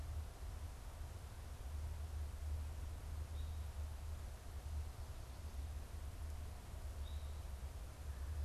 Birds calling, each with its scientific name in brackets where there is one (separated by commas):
Eastern Towhee (Pipilo erythrophthalmus)